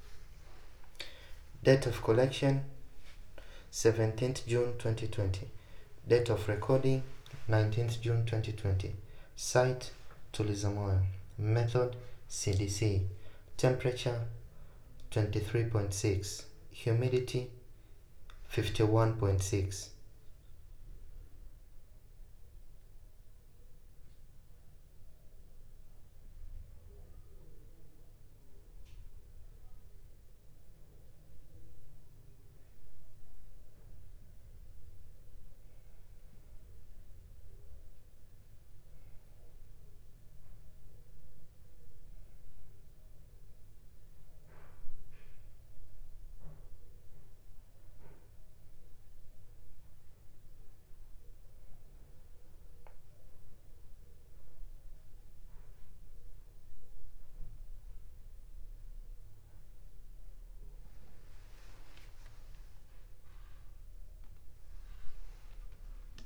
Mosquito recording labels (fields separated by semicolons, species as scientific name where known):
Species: no mosquito; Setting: cup